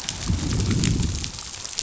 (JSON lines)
{"label": "biophony, growl", "recorder": "SoundTrap 500"}